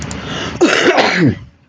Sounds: Cough